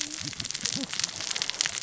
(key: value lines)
label: biophony, cascading saw
recorder: SoundTrap 600 or HydroMoth